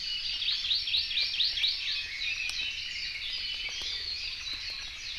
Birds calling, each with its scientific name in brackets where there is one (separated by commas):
Warbling White-eye (Zosterops japonicus), Hawaii Amakihi (Chlorodrepanis virens), Red-billed Leiothrix (Leiothrix lutea)